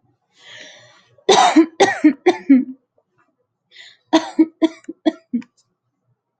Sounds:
Cough